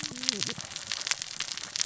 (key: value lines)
label: biophony, cascading saw
recorder: SoundTrap 600 or HydroMoth